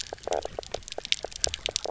{"label": "biophony, knock croak", "recorder": "SoundTrap 300"}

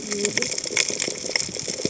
{"label": "biophony, cascading saw", "recorder": "HydroMoth"}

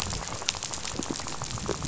{"label": "biophony, rattle", "recorder": "SoundTrap 500"}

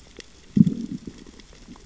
{"label": "biophony, growl", "recorder": "SoundTrap 600 or HydroMoth"}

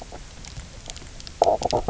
{"label": "biophony, knock croak", "recorder": "SoundTrap 300"}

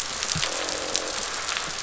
{"label": "biophony, croak", "recorder": "SoundTrap 500"}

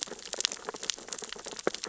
{"label": "biophony, sea urchins (Echinidae)", "recorder": "SoundTrap 600 or HydroMoth"}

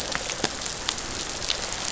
{"label": "biophony", "recorder": "SoundTrap 500"}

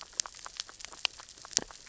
{"label": "biophony, grazing", "recorder": "SoundTrap 600 or HydroMoth"}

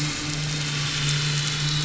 {"label": "anthrophony, boat engine", "recorder": "SoundTrap 500"}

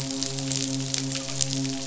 {"label": "biophony, midshipman", "recorder": "SoundTrap 500"}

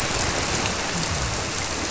{"label": "biophony", "recorder": "SoundTrap 300"}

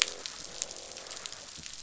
{"label": "biophony, croak", "recorder": "SoundTrap 500"}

